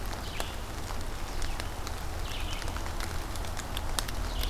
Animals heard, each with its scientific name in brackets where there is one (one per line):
Red-eyed Vireo (Vireo olivaceus)